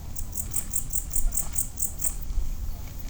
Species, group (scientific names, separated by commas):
Pholidoptera aptera, Orthoptera